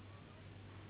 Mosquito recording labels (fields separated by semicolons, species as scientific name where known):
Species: Anopheles gambiae s.s.; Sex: female; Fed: unfed; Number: one; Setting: insect culture